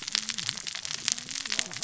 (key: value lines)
label: biophony, cascading saw
recorder: SoundTrap 600 or HydroMoth